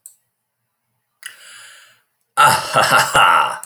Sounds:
Laughter